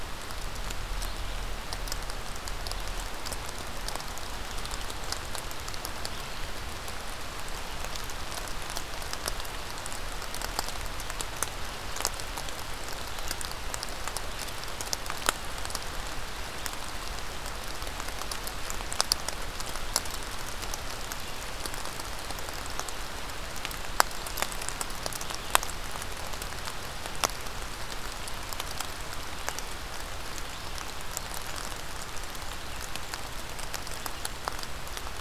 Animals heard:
forest ambience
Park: Marsh-Billings-Rockefeller National Historical Park